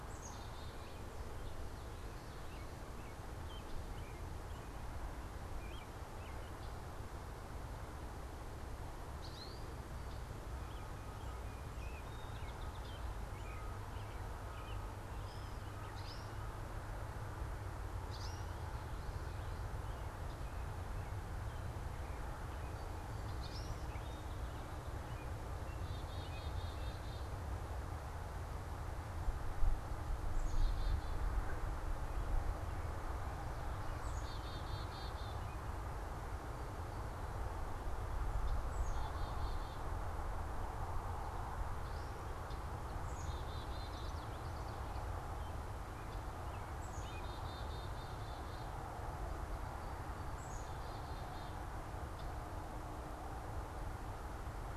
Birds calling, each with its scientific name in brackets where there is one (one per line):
Black-capped Chickadee (Poecile atricapillus)
American Robin (Turdus migratorius)
American Goldfinch (Spinus tristis)